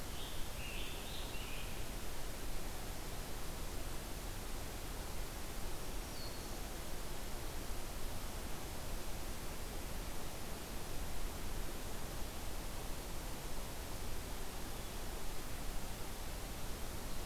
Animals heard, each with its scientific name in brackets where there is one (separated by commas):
Black-throated Green Warbler (Setophaga virens), Scarlet Tanager (Piranga olivacea)